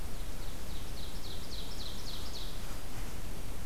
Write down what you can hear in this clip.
Ovenbird